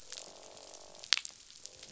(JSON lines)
{"label": "biophony, croak", "recorder": "SoundTrap 500"}